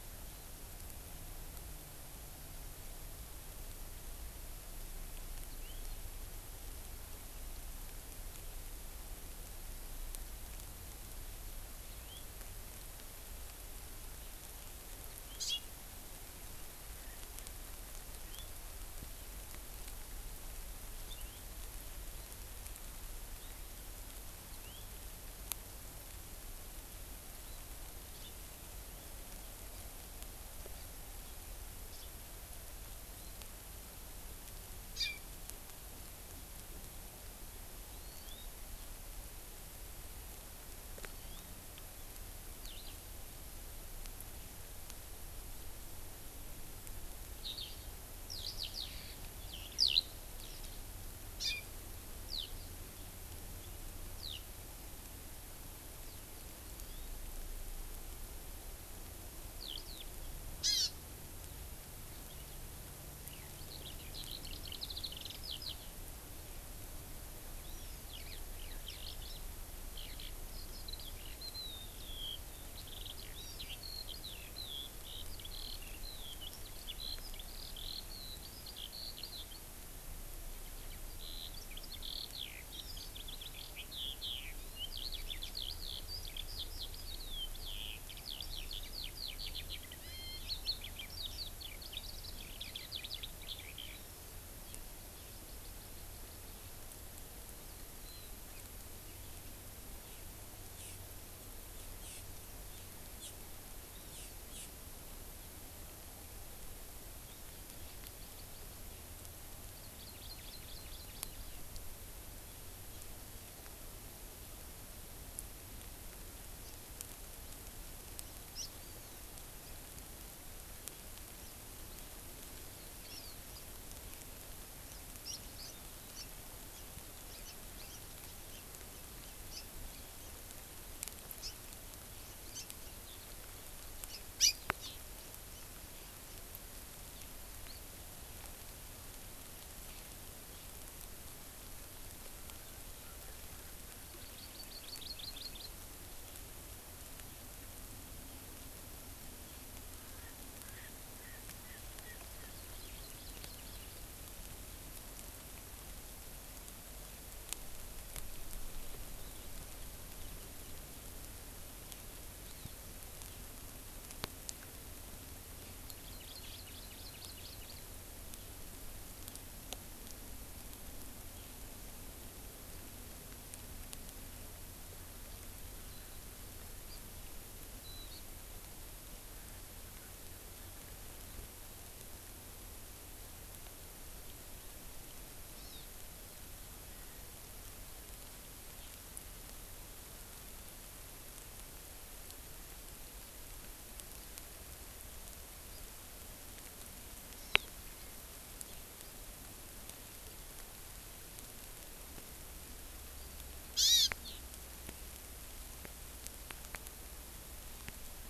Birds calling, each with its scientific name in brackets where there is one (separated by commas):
Eurasian Skylark (Alauda arvensis), Erckel's Francolin (Pternistis erckelii), House Finch (Haemorhous mexicanus), Hawaii Amakihi (Chlorodrepanis virens)